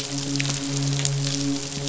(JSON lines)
{"label": "biophony, midshipman", "recorder": "SoundTrap 500"}